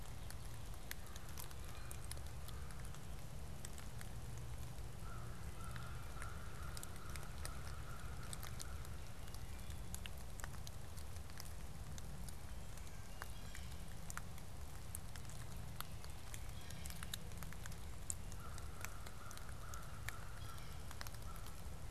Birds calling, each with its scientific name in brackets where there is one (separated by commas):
Blue Jay (Cyanocitta cristata), Wood Thrush (Hylocichla mustelina), American Crow (Corvus brachyrhynchos)